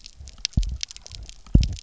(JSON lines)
{"label": "biophony, double pulse", "recorder": "SoundTrap 300"}